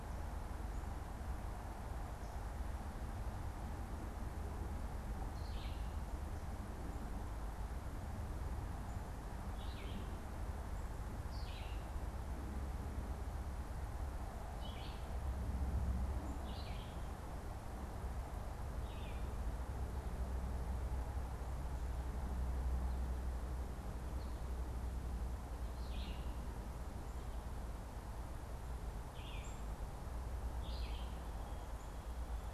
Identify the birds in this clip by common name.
Red-eyed Vireo, American Goldfinch, Black-capped Chickadee